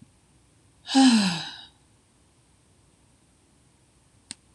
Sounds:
Sigh